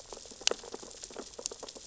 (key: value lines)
label: biophony, sea urchins (Echinidae)
recorder: SoundTrap 600 or HydroMoth